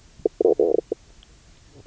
{"label": "biophony, knock croak", "recorder": "SoundTrap 300"}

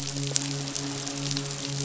{"label": "biophony, midshipman", "recorder": "SoundTrap 500"}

